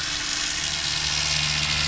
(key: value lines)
label: anthrophony, boat engine
recorder: SoundTrap 500